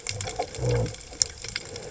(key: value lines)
label: biophony
recorder: HydroMoth